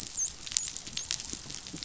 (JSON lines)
{"label": "biophony, dolphin", "recorder": "SoundTrap 500"}